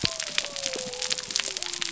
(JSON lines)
{"label": "biophony", "recorder": "SoundTrap 300"}